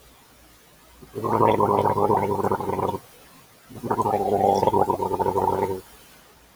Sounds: Throat clearing